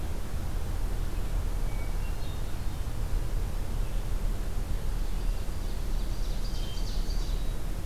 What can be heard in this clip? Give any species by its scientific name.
Catharus guttatus, Seiurus aurocapilla